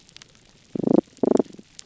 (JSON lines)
{"label": "biophony, damselfish", "recorder": "SoundTrap 300"}